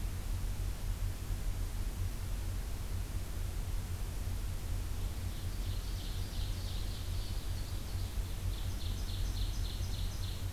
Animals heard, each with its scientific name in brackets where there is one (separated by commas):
Ovenbird (Seiurus aurocapilla)